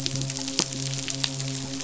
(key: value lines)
label: biophony, midshipman
recorder: SoundTrap 500